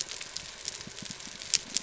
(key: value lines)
label: biophony
recorder: SoundTrap 300